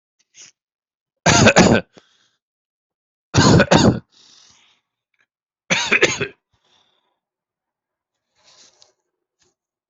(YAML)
expert_labels:
- quality: ok
  cough_type: dry
  dyspnea: false
  wheezing: false
  stridor: false
  choking: false
  congestion: false
  nothing: true
  diagnosis: healthy cough
  severity: pseudocough/healthy cough
- quality: good
  cough_type: dry
  dyspnea: false
  wheezing: false
  stridor: false
  choking: false
  congestion: true
  nothing: false
  diagnosis: upper respiratory tract infection
  severity: mild
- quality: good
  cough_type: unknown
  dyspnea: false
  wheezing: false
  stridor: false
  choking: false
  congestion: false
  nothing: true
  diagnosis: upper respiratory tract infection
  severity: mild
- quality: good
  cough_type: dry
  dyspnea: false
  wheezing: false
  stridor: false
  choking: false
  congestion: false
  nothing: true
  diagnosis: upper respiratory tract infection
  severity: mild
age: 30
gender: male
respiratory_condition: false
fever_muscle_pain: false
status: symptomatic